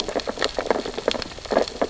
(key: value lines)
label: biophony, sea urchins (Echinidae)
recorder: SoundTrap 600 or HydroMoth